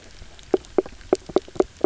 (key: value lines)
label: biophony, knock croak
recorder: SoundTrap 300